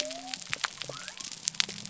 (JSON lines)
{"label": "biophony", "recorder": "SoundTrap 300"}